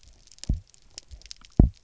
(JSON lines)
{"label": "biophony, double pulse", "recorder": "SoundTrap 300"}